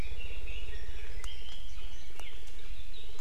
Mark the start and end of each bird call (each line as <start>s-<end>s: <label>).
0.0s-2.4s: Red-billed Leiothrix (Leiothrix lutea)